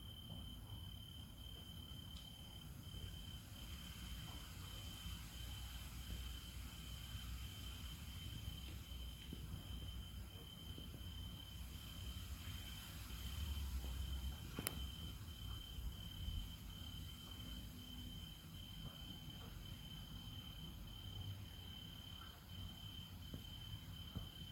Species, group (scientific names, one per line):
Oecanthus pellucens
Orthoptera